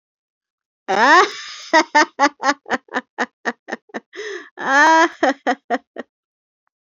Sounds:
Laughter